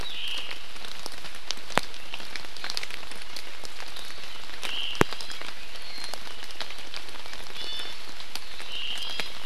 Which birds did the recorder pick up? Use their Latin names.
Myadestes obscurus, Drepanis coccinea